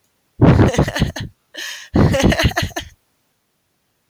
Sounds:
Laughter